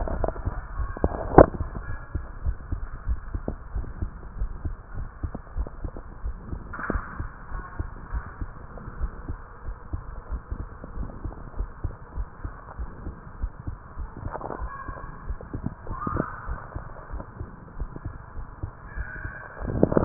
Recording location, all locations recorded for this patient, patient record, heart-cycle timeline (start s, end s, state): tricuspid valve (TV)
aortic valve (AV)+pulmonary valve (PV)+tricuspid valve (TV)+mitral valve (MV)
#Age: Child
#Sex: Female
#Height: 139.0 cm
#Weight: 34.7 kg
#Pregnancy status: False
#Murmur: Absent
#Murmur locations: nan
#Most audible location: nan
#Systolic murmur timing: nan
#Systolic murmur shape: nan
#Systolic murmur grading: nan
#Systolic murmur pitch: nan
#Systolic murmur quality: nan
#Diastolic murmur timing: nan
#Diastolic murmur shape: nan
#Diastolic murmur grading: nan
#Diastolic murmur pitch: nan
#Diastolic murmur quality: nan
#Outcome: Normal
#Campaign: 2015 screening campaign
0.00	2.24	unannotated
2.24	2.44	diastole
2.44	2.58	S1
2.58	2.70	systole
2.70	2.80	S2
2.80	3.04	diastole
3.04	3.20	S1
3.20	3.32	systole
3.32	3.42	S2
3.42	3.72	diastole
3.72	3.86	S1
3.86	3.98	systole
3.98	4.10	S2
4.10	4.36	diastole
4.36	4.52	S1
4.52	4.64	systole
4.64	4.76	S2
4.76	4.96	diastole
4.96	5.08	S1
5.08	5.22	systole
5.22	5.32	S2
5.32	5.54	diastole
5.54	5.68	S1
5.68	5.82	systole
5.82	5.92	S2
5.92	6.22	diastole
6.22	6.36	S1
6.36	6.50	systole
6.50	6.60	S2
6.60	6.88	diastole
6.88	7.02	S1
7.02	7.18	systole
7.18	7.30	S2
7.30	7.52	diastole
7.52	7.64	S1
7.64	7.78	systole
7.78	7.90	S2
7.90	8.10	diastole
8.10	8.25	S1
8.25	8.39	systole
8.39	8.53	S2
8.53	8.98	diastole
8.98	9.12	S1
9.12	9.28	systole
9.28	9.38	S2
9.38	9.63	diastole
9.63	9.78	S1
9.78	9.92	systole
9.92	10.06	S2
10.06	10.30	diastole
10.30	10.42	S1
10.42	10.54	systole
10.54	10.70	S2
10.70	10.94	diastole
10.94	11.08	S1
11.08	11.21	systole
11.21	11.36	S2
11.36	11.56	diastole
11.56	11.70	S1
11.70	11.80	systole
11.80	11.92	S2
11.92	12.16	diastole
12.16	12.28	S1
12.28	12.40	systole
12.40	12.52	S2
12.52	12.78	diastole
12.78	12.92	S1
12.92	13.02	systole
13.02	13.16	S2
13.16	13.38	diastole
13.38	13.50	S1
13.50	13.61	systole
13.61	13.78	S2
13.78	13.96	diastole
13.96	14.10	S1
14.10	20.05	unannotated